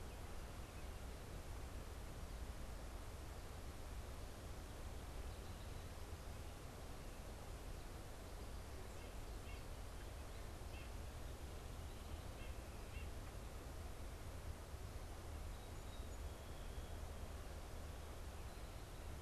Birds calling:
White-breasted Nuthatch (Sitta carolinensis)

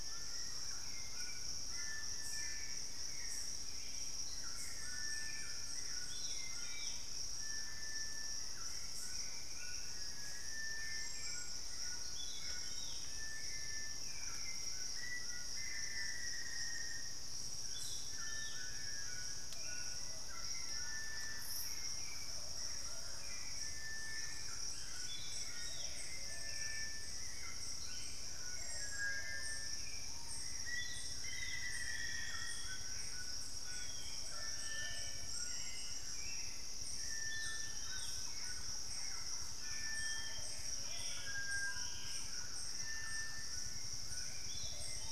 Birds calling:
Plumbeous Pigeon (Patagioenas plumbea), White-throated Toucan (Ramphastos tucanus), Black-faced Antthrush (Formicarius analis), Gray Antbird (Cercomacra cinerascens), Screaming Piha (Lipaugus vociferans), Black-spotted Bare-eye (Phlegopsis nigromaculata), Thrush-like Wren (Campylorhynchus turdinus), Hauxwell's Thrush (Turdus hauxwelli)

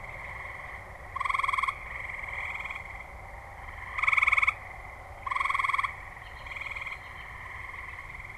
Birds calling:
American Robin (Turdus migratorius)

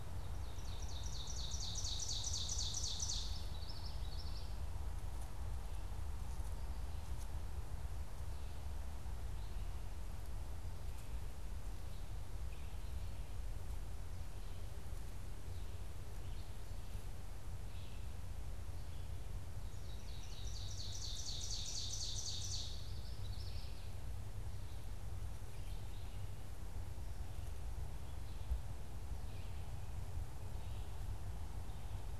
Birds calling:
Ovenbird (Seiurus aurocapilla), Red-eyed Vireo (Vireo olivaceus), Common Yellowthroat (Geothlypis trichas)

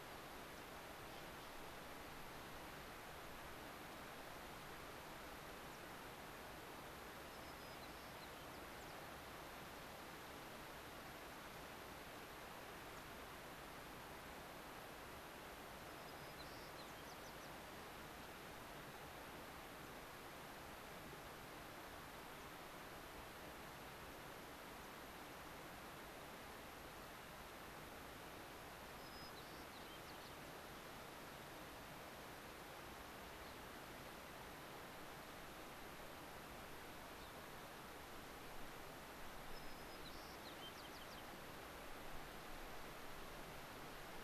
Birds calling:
Gray-crowned Rosy-Finch (Leucosticte tephrocotis), unidentified bird, White-crowned Sparrow (Zonotrichia leucophrys), American Pipit (Anthus rubescens)

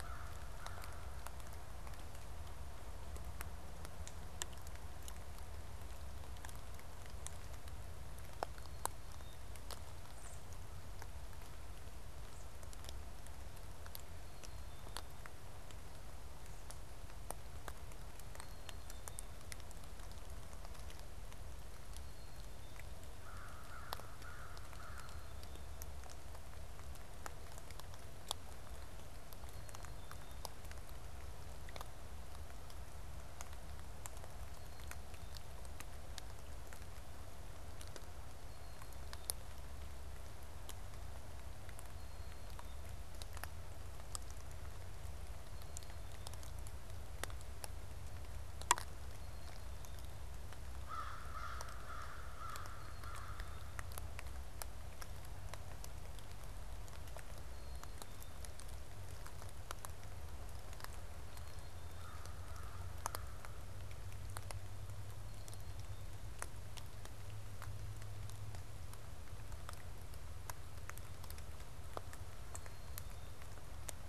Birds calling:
American Crow (Corvus brachyrhynchos), Black-capped Chickadee (Poecile atricapillus)

